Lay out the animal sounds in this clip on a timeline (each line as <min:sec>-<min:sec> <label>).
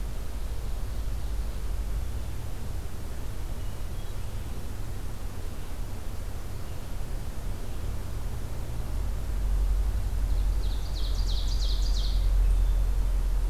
0:03.4-0:04.3 Hermit Thrush (Catharus guttatus)
0:10.1-0:12.3 Ovenbird (Seiurus aurocapilla)
0:12.1-0:13.5 Hermit Thrush (Catharus guttatus)